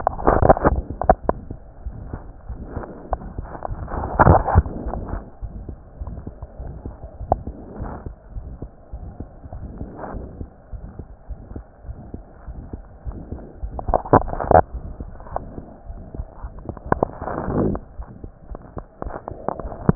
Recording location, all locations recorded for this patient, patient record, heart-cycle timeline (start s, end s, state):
aortic valve (AV)
aortic valve (AV)+pulmonary valve (PV)+tricuspid valve (TV)+mitral valve (MV)
#Age: Child
#Sex: Female
#Height: 115.0 cm
#Weight: 19.6 kg
#Pregnancy status: False
#Murmur: Present
#Murmur locations: aortic valve (AV)+mitral valve (MV)+pulmonary valve (PV)+tricuspid valve (TV)
#Most audible location: pulmonary valve (PV)
#Systolic murmur timing: Early-systolic
#Systolic murmur shape: Decrescendo
#Systolic murmur grading: II/VI
#Systolic murmur pitch: Low
#Systolic murmur quality: Blowing
#Diastolic murmur timing: nan
#Diastolic murmur shape: nan
#Diastolic murmur grading: nan
#Diastolic murmur pitch: nan
#Diastolic murmur quality: nan
#Outcome: Abnormal
#Campaign: 2015 screening campaign
0.00	7.74	unannotated
7.74	7.90	S1
7.90	8.04	systole
8.04	8.16	S2
8.16	8.34	diastole
8.34	8.46	S1
8.46	8.60	systole
8.60	8.70	S2
8.70	8.91	diastole
8.91	9.01	S1
9.01	9.18	systole
9.18	9.28	S2
9.28	9.52	diastole
9.52	9.68	S1
9.68	9.78	systole
9.78	9.90	S2
9.90	10.13	diastole
10.13	10.25	S1
10.25	10.38	systole
10.38	10.48	S2
10.48	10.71	diastole
10.71	10.82	S1
10.82	10.97	systole
10.97	11.05	S2
11.05	11.25	diastole
11.25	11.42	S1
11.42	11.52	systole
11.52	11.64	S2
11.64	11.84	diastole
11.84	12.00	S1
12.00	12.10	systole
12.10	12.20	S2
12.20	12.45	diastole
12.45	12.62	S1
12.62	12.70	systole
12.70	12.80	S2
12.80	13.03	diastole
13.03	13.20	S1
13.20	13.30	systole
13.30	13.40	S2
13.40	13.61	diastole
13.61	13.68	S1
13.68	19.95	unannotated